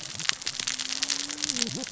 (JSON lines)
{"label": "biophony, cascading saw", "recorder": "SoundTrap 600 or HydroMoth"}